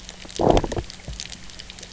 {"label": "biophony, low growl", "recorder": "SoundTrap 300"}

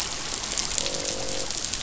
{"label": "biophony, croak", "recorder": "SoundTrap 500"}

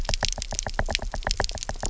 {"label": "biophony, knock", "recorder": "SoundTrap 300"}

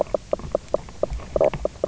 {"label": "biophony, knock croak", "recorder": "SoundTrap 300"}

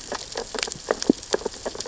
{"label": "biophony, sea urchins (Echinidae)", "recorder": "SoundTrap 600 or HydroMoth"}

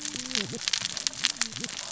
{"label": "biophony, cascading saw", "recorder": "SoundTrap 600 or HydroMoth"}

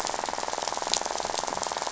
{"label": "biophony, rattle", "recorder": "SoundTrap 500"}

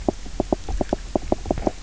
{"label": "biophony, knock croak", "recorder": "SoundTrap 300"}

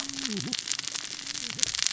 {"label": "biophony, cascading saw", "recorder": "SoundTrap 600 or HydroMoth"}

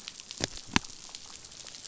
{"label": "biophony", "recorder": "SoundTrap 500"}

